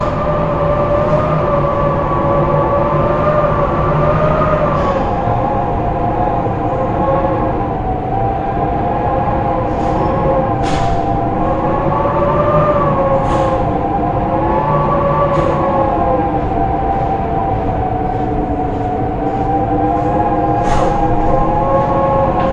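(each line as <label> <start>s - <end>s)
Footsteps on a metallic surface repeated. 0.0s - 22.5s
Wind blowing loudly. 0.0s - 22.5s
A metallic door shuts. 4.9s - 6.0s
A metallic door shuts. 6.7s - 7.6s
A metallic door shuts. 10.0s - 11.1s
A metallic door shuts. 13.3s - 14.4s
A metallic door shuts. 15.5s - 16.8s
A metallic door shuts. 20.6s - 21.6s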